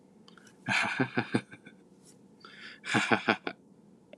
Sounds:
Laughter